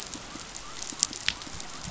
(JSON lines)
{"label": "biophony", "recorder": "SoundTrap 500"}